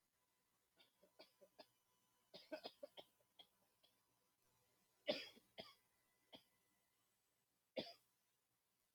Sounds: Cough